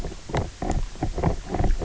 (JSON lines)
{"label": "biophony, knock croak", "recorder": "SoundTrap 300"}